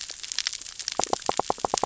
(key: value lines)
label: biophony, knock
recorder: SoundTrap 600 or HydroMoth